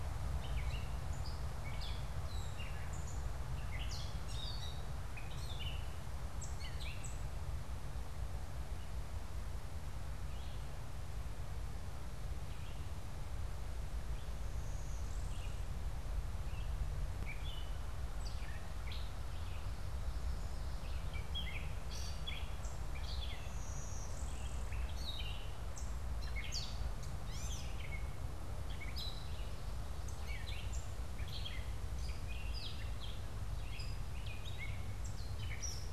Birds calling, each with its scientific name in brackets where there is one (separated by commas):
Red-eyed Vireo (Vireo olivaceus), Gray Catbird (Dumetella carolinensis), Blue-winged Warbler (Vermivora cyanoptera)